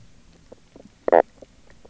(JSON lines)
{"label": "biophony, knock croak", "recorder": "SoundTrap 300"}